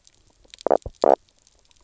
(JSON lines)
{"label": "biophony, knock croak", "recorder": "SoundTrap 300"}